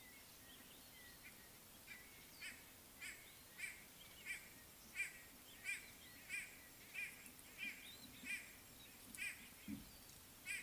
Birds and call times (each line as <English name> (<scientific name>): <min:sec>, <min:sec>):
White-bellied Go-away-bird (Corythaixoides leucogaster): 0:03.6, 0:06.4, 0:09.3